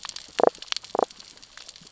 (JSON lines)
{"label": "biophony, damselfish", "recorder": "SoundTrap 600 or HydroMoth"}